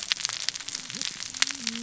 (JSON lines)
{"label": "biophony, cascading saw", "recorder": "SoundTrap 600 or HydroMoth"}